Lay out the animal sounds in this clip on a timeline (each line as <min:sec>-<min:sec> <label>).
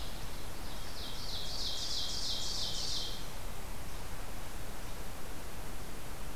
0:00.5-0:03.2 Ovenbird (Seiurus aurocapilla)